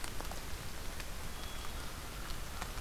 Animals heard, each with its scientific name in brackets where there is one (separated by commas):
American Crow (Corvus brachyrhynchos), Hermit Thrush (Catharus guttatus)